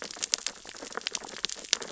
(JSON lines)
{"label": "biophony, sea urchins (Echinidae)", "recorder": "SoundTrap 600 or HydroMoth"}